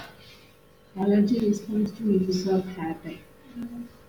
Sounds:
Laughter